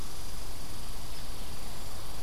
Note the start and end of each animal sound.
0.0s-2.2s: Red Squirrel (Tamiasciurus hudsonicus)

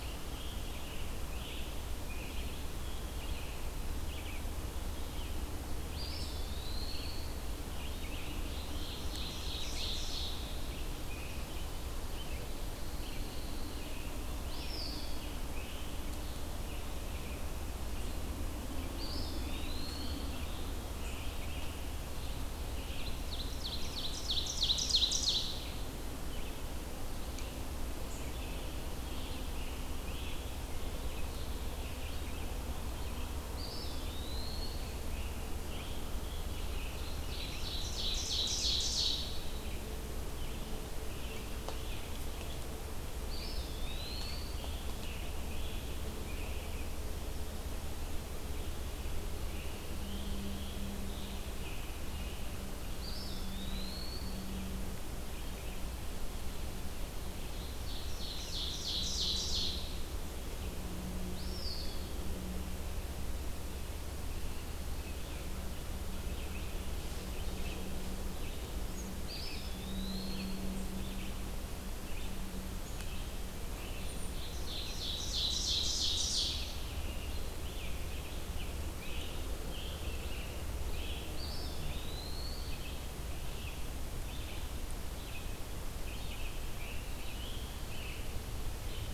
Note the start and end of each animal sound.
0.0s-89.1s: Red-eyed Vireo (Vireo olivaceus)
5.9s-7.2s: Eastern Wood-Pewee (Contopus virens)
8.2s-10.6s: Ovenbird (Seiurus aurocapilla)
12.7s-14.0s: Pine Warbler (Setophaga pinus)
14.5s-15.3s: Eastern Wood-Pewee (Contopus virens)
18.9s-20.3s: Eastern Wood-Pewee (Contopus virens)
23.1s-26.0s: Ovenbird (Seiurus aurocapilla)
27.9s-28.4s: Black-capped Chickadee (Poecile atricapillus)
33.5s-34.8s: Eastern Wood-Pewee (Contopus virens)
37.3s-39.3s: Ovenbird (Seiurus aurocapilla)
43.2s-44.7s: Eastern Wood-Pewee (Contopus virens)
50.2s-52.6s: Scarlet Tanager (Piranga olivacea)
52.9s-54.4s: Eastern Wood-Pewee (Contopus virens)
57.8s-60.2s: Ovenbird (Seiurus aurocapilla)
61.2s-62.1s: Eastern Wood-Pewee (Contopus virens)
69.2s-70.7s: Eastern Wood-Pewee (Contopus virens)
73.9s-74.4s: Golden-crowned Kinglet (Regulus satrapa)
74.5s-77.0s: Ovenbird (Seiurus aurocapilla)
78.9s-81.6s: Scarlet Tanager (Piranga olivacea)
81.3s-82.9s: Eastern Wood-Pewee (Contopus virens)
85.9s-88.3s: Scarlet Tanager (Piranga olivacea)

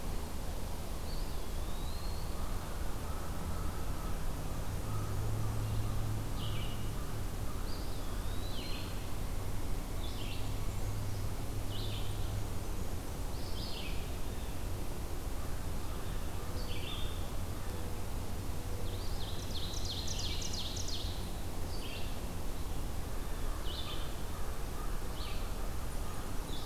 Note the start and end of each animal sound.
0.9s-2.4s: Eastern Wood-Pewee (Contopus virens)
2.3s-8.2s: American Crow (Corvus brachyrhynchos)
6.2s-26.6s: Red-eyed Vireo (Vireo olivaceus)
7.7s-9.0s: Eastern Wood-Pewee (Contopus virens)
18.8s-21.2s: Ovenbird (Seiurus aurocapilla)

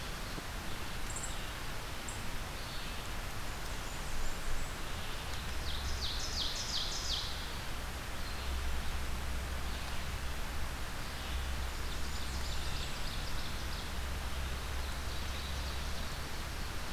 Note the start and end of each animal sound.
0.0s-16.9s: Red-eyed Vireo (Vireo olivaceus)
1.0s-2.2s: unknown mammal
3.4s-4.8s: Blackburnian Warbler (Setophaga fusca)
5.3s-7.8s: Ovenbird (Seiurus aurocapilla)
11.5s-13.1s: Blackburnian Warbler (Setophaga fusca)
11.8s-13.9s: Ovenbird (Seiurus aurocapilla)
14.4s-16.2s: Ovenbird (Seiurus aurocapilla)

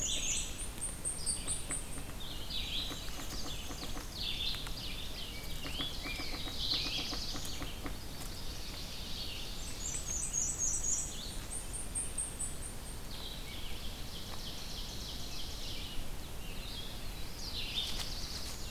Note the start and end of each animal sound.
0.0s-0.7s: Black-and-white Warbler (Mniotilta varia)
0.0s-5.2s: Red-eyed Vireo (Vireo olivaceus)
0.1s-2.2s: Blackpoll Warbler (Setophaga striata)
2.5s-4.2s: Black-and-white Warbler (Mniotilta varia)
2.7s-6.9s: Ovenbird (Seiurus aurocapilla)
5.2s-7.0s: Rose-breasted Grosbeak (Pheucticus ludovicianus)
5.5s-7.7s: Black-throated Blue Warbler (Setophaga caerulescens)
6.2s-18.7s: Red-eyed Vireo (Vireo olivaceus)
7.7s-9.0s: Chestnut-sided Warbler (Setophaga pensylvanica)
8.3s-10.1s: Ovenbird (Seiurus aurocapilla)
9.3s-11.5s: Black-and-white Warbler (Mniotilta varia)
11.0s-13.1s: Blackpoll Warbler (Setophaga striata)
13.4s-16.2s: Ovenbird (Seiurus aurocapilla)
16.7s-18.7s: Black-throated Blue Warbler (Setophaga caerulescens)

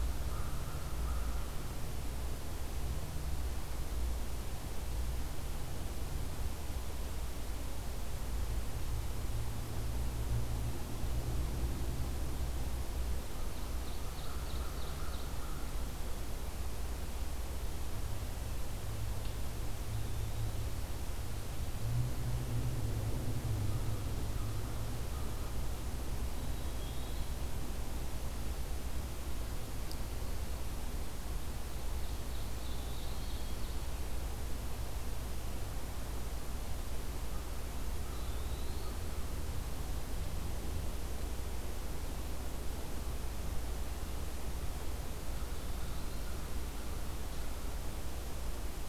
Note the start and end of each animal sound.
0.1s-1.8s: American Crow (Corvus brachyrhynchos)
13.1s-15.3s: Ovenbird (Seiurus aurocapilla)
14.0s-15.8s: American Crow (Corvus brachyrhynchos)
19.4s-20.8s: Eastern Wood-Pewee (Contopus virens)
26.2s-27.3s: Eastern Wood-Pewee (Contopus virens)
31.5s-34.0s: Ovenbird (Seiurus aurocapilla)
37.2s-39.9s: American Crow (Corvus brachyrhynchos)
37.8s-39.0s: Ovenbird (Seiurus aurocapilla)
45.2s-46.4s: Eastern Wood-Pewee (Contopus virens)

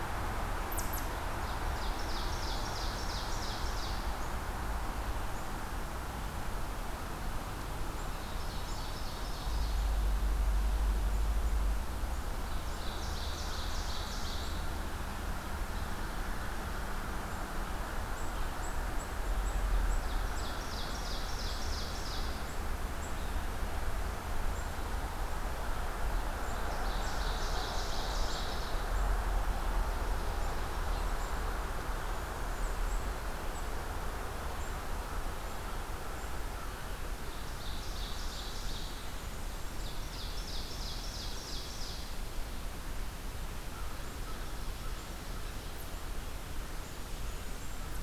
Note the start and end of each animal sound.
0.7s-1.1s: Eastern Chipmunk (Tamias striatus)
1.3s-4.1s: Ovenbird (Seiurus aurocapilla)
8.1s-10.0s: Ovenbird (Seiurus aurocapilla)
12.4s-14.7s: Ovenbird (Seiurus aurocapilla)
18.0s-20.5s: unidentified call
19.9s-22.5s: Ovenbird (Seiurus aurocapilla)
26.3s-29.0s: Ovenbird (Seiurus aurocapilla)
29.3s-31.2s: Ovenbird (Seiurus aurocapilla)
30.3s-36.4s: unidentified call
37.1s-39.1s: Ovenbird (Seiurus aurocapilla)
39.6s-42.3s: Ovenbird (Seiurus aurocapilla)
46.6s-47.9s: Blackburnian Warbler (Setophaga fusca)

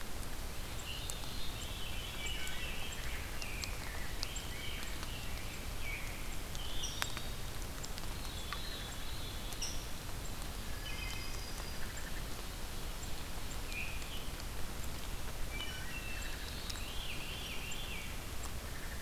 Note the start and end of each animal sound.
0.0s-16.2s: unknown mammal
0.3s-3.7s: Veery (Catharus fuscescens)
1.8s-3.1s: Wood Thrush (Hylocichla mustelina)
2.4s-6.9s: Rose-breasted Grosbeak (Pheucticus ludovicianus)
6.8s-7.5s: Wood Thrush (Hylocichla mustelina)
7.6s-10.2s: Veery (Catharus fuscescens)
10.3s-12.3s: Wood Thrush (Hylocichla mustelina)
10.6s-12.0s: Yellow-rumped Warbler (Setophaga coronata)
13.6s-14.1s: Veery (Catharus fuscescens)
15.3s-17.1s: Wood Thrush (Hylocichla mustelina)
16.5s-18.4s: Veery (Catharus fuscescens)
16.5s-19.0s: unknown mammal

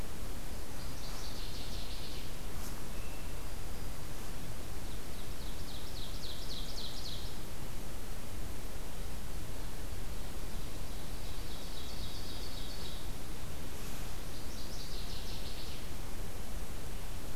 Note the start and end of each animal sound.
0.7s-2.4s: Northern Waterthrush (Parkesia noveboracensis)
3.2s-4.1s: Black-throated Green Warbler (Setophaga virens)
4.7s-7.4s: Ovenbird (Seiurus aurocapilla)
11.1s-13.1s: Ovenbird (Seiurus aurocapilla)
14.3s-15.8s: Northern Waterthrush (Parkesia noveboracensis)

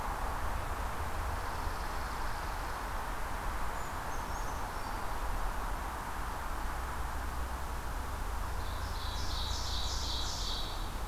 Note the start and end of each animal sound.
3.5s-5.4s: Brown Creeper (Certhia americana)
8.6s-11.1s: Ovenbird (Seiurus aurocapilla)

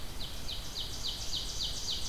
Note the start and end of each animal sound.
0.0s-2.1s: Ovenbird (Seiurus aurocapilla)
0.0s-2.1s: Red-eyed Vireo (Vireo olivaceus)

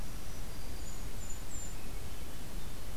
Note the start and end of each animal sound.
0.0s-1.3s: Black-throated Green Warbler (Setophaga virens)
0.6s-1.9s: Golden-crowned Kinglet (Regulus satrapa)
1.6s-3.0s: Swainson's Thrush (Catharus ustulatus)

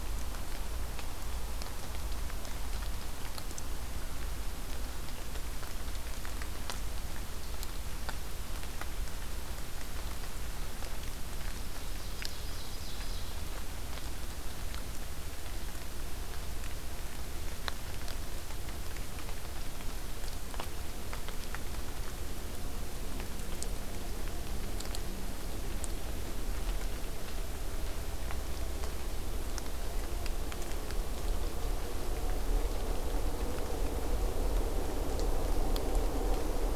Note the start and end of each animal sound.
11.5s-13.3s: Ovenbird (Seiurus aurocapilla)

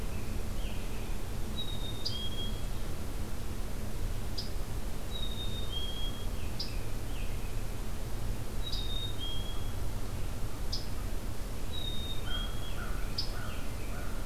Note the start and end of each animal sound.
0.0s-1.2s: American Robin (Turdus migratorius)
1.4s-2.8s: Black-capped Chickadee (Poecile atricapillus)
2.0s-2.2s: Scarlet Tanager (Piranga olivacea)
4.3s-4.5s: Scarlet Tanager (Piranga olivacea)
5.1s-6.3s: Black-capped Chickadee (Poecile atricapillus)
6.1s-7.6s: American Robin (Turdus migratorius)
6.4s-6.8s: Scarlet Tanager (Piranga olivacea)
8.5s-9.9s: Black-capped Chickadee (Poecile atricapillus)
8.7s-8.8s: Scarlet Tanager (Piranga olivacea)
10.6s-10.9s: Scarlet Tanager (Piranga olivacea)
11.7s-12.8s: Black-capped Chickadee (Poecile atricapillus)
12.2s-14.3s: American Crow (Corvus brachyrhynchos)
12.4s-14.0s: American Robin (Turdus migratorius)
13.2s-13.3s: Scarlet Tanager (Piranga olivacea)

